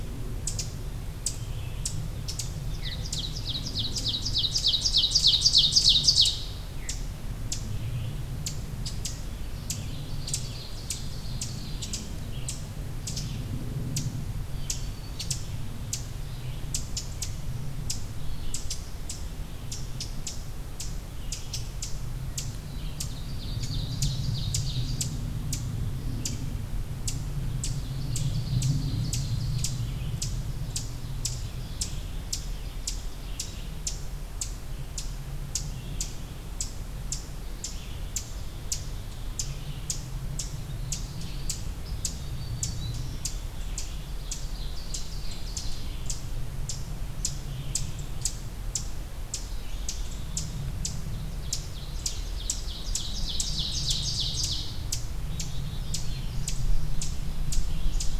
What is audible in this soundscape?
Red-eyed Vireo, Ovenbird, Black-throated Green Warbler, Black-capped Chickadee, Black-throated Blue Warbler